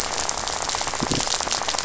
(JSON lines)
{"label": "biophony, rattle", "recorder": "SoundTrap 500"}